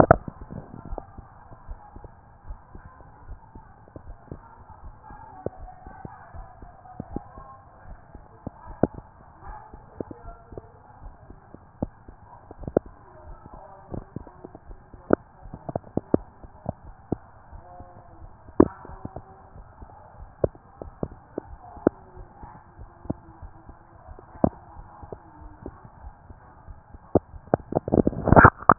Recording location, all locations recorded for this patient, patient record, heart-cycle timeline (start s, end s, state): tricuspid valve (TV)
aortic valve (AV)+pulmonary valve (PV)+tricuspid valve (TV)+mitral valve (MV)
#Age: Child
#Sex: Male
#Height: 153.0 cm
#Weight: 53.4 kg
#Pregnancy status: False
#Murmur: Absent
#Murmur locations: nan
#Most audible location: nan
#Systolic murmur timing: nan
#Systolic murmur shape: nan
#Systolic murmur grading: nan
#Systolic murmur pitch: nan
#Systolic murmur quality: nan
#Diastolic murmur timing: nan
#Diastolic murmur shape: nan
#Diastolic murmur grading: nan
#Diastolic murmur pitch: nan
#Diastolic murmur quality: nan
#Outcome: Abnormal
#Campaign: 2014 screening campaign
0.00	0.88	unannotated
0.88	1.02	S1
1.02	1.16	systole
1.16	1.26	S2
1.26	1.68	diastole
1.68	1.80	S1
1.80	1.96	systole
1.96	2.08	S2
2.08	2.48	diastole
2.48	2.58	S1
2.58	2.74	systole
2.74	2.86	S2
2.86	3.28	diastole
3.28	3.38	S1
3.38	3.54	systole
3.54	3.64	S2
3.64	4.06	diastole
4.06	4.16	S1
4.16	4.30	systole
4.30	4.42	S2
4.42	4.84	diastole
4.84	4.94	S1
4.94	5.10	systole
5.10	5.20	S2
5.20	5.60	diastole
5.60	5.70	S1
5.70	5.86	systole
5.86	5.94	S2
5.94	6.34	diastole
6.34	6.46	S1
6.46	6.62	systole
6.62	6.70	S2
6.70	7.10	diastole
7.10	28.78	unannotated